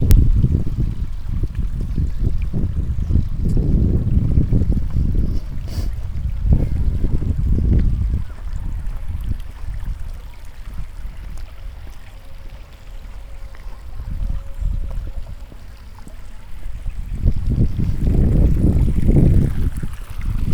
can any animals be heard in the distance?
yes